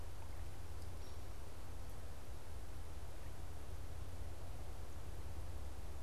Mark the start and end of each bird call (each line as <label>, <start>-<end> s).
Downy Woodpecker (Dryobates pubescens), 0.9-1.3 s